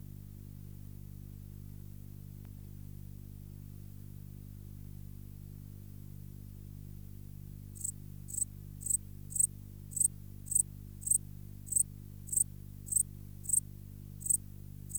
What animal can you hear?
Pholidoptera macedonica, an orthopteran